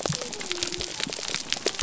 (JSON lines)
{"label": "biophony", "recorder": "SoundTrap 300"}